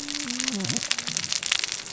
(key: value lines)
label: biophony, cascading saw
recorder: SoundTrap 600 or HydroMoth